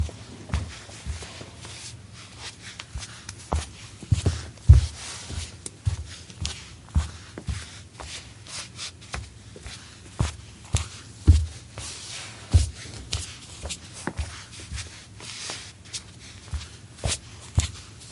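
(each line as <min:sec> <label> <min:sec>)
0:00.0 Footsteps on a flat surface. 0:18.1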